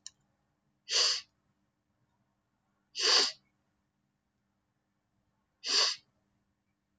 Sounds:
Sniff